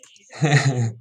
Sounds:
Laughter